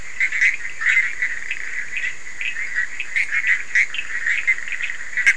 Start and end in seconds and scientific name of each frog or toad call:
0.0	5.3	Boana bischoffi
3.7	5.3	Sphaenorhynchus surdus